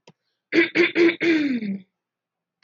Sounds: Throat clearing